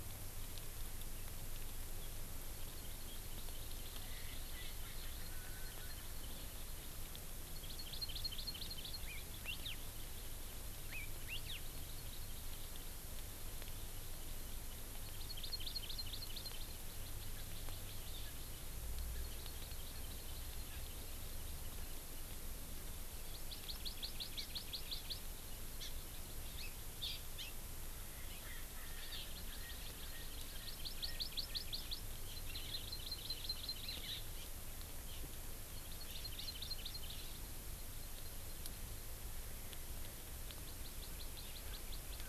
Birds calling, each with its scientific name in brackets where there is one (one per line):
Hawaii Elepaio (Chasiempis sandwichensis)
Erckel's Francolin (Pternistis erckelii)
Hawaii Amakihi (Chlorodrepanis virens)